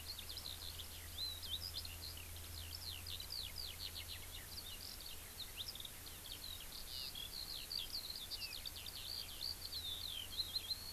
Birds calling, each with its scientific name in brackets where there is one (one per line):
Eurasian Skylark (Alauda arvensis)